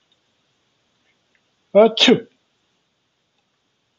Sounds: Sneeze